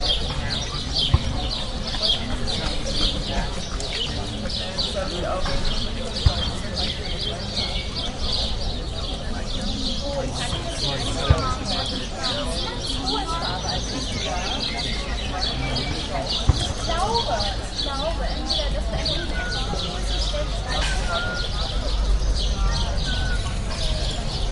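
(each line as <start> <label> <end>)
0.0 Birds are singing continuously outdoors. 24.5
0.0 Several people are chatting. 24.5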